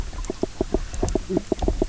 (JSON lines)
{"label": "biophony, knock croak", "recorder": "SoundTrap 300"}